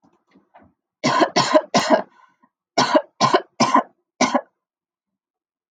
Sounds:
Cough